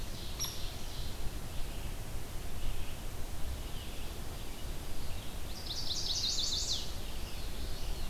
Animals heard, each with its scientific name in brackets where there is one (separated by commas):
Ovenbird (Seiurus aurocapilla), Chestnut-sided Warbler (Setophaga pensylvanica), Red-eyed Vireo (Vireo olivaceus), Hairy Woodpecker (Dryobates villosus)